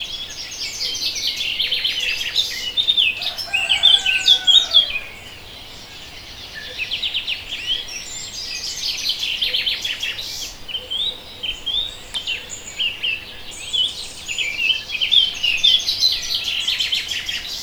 Are animals chirping?
yes